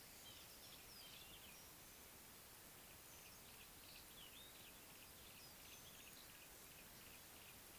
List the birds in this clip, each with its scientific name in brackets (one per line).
Yellow-breasted Apalis (Apalis flavida)